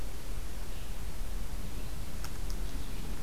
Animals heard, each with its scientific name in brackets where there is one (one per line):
Red-eyed Vireo (Vireo olivaceus)